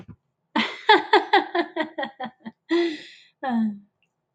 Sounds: Laughter